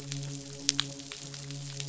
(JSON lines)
{"label": "biophony, midshipman", "recorder": "SoundTrap 500"}